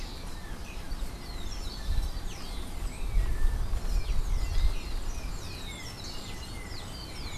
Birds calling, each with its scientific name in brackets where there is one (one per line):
Yellow-backed Oriole (Icterus chrysater)